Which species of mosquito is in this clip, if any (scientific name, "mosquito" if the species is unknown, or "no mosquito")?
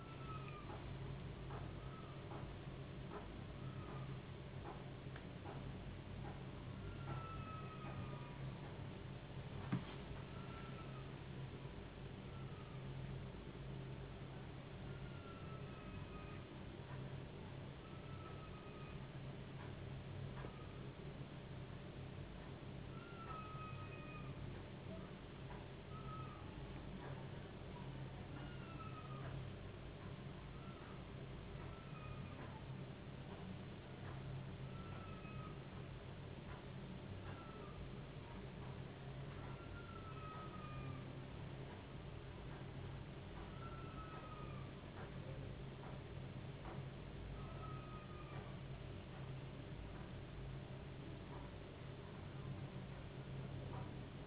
no mosquito